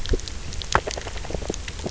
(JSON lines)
{"label": "biophony, grazing", "recorder": "SoundTrap 300"}